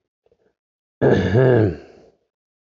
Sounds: Throat clearing